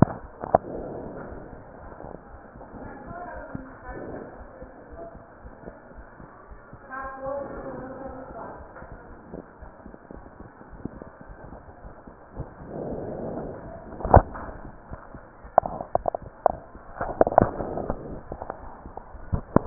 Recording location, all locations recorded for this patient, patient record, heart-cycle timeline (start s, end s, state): aortic valve (AV)
aortic valve (AV)+pulmonary valve (PV)+tricuspid valve (TV)+mitral valve (MV)
#Age: Child
#Sex: Male
#Height: 133.0 cm
#Weight: 42.6 kg
#Pregnancy status: False
#Murmur: Unknown
#Murmur locations: nan
#Most audible location: nan
#Systolic murmur timing: nan
#Systolic murmur shape: nan
#Systolic murmur grading: nan
#Systolic murmur pitch: nan
#Systolic murmur quality: nan
#Diastolic murmur timing: nan
#Diastolic murmur shape: nan
#Diastolic murmur grading: nan
#Diastolic murmur pitch: nan
#Diastolic murmur quality: nan
#Outcome: Normal
#Campaign: 2015 screening campaign
0.00	9.61	unannotated
9.61	9.72	S1
9.72	9.86	systole
9.86	9.94	S2
9.94	10.16	diastole
10.16	10.26	S1
10.26	10.40	systole
10.40	10.50	S2
10.50	10.74	diastole
10.74	10.84	S1
10.84	10.94	systole
10.94	11.06	S2
11.06	11.28	diastole
11.28	11.36	S1
11.36	11.48	systole
11.48	11.60	S2
11.60	11.83	diastole
11.83	11.96	S1
11.96	12.05	systole
12.05	12.14	S2
12.14	12.36	diastole
12.36	12.50	S1
12.50	12.58	systole
12.58	12.68	S2
12.68	14.89	unannotated
14.89	15.00	S1
15.00	15.12	systole
15.12	15.22	S2
15.22	15.42	diastole
15.42	15.52	S1
15.52	19.66	unannotated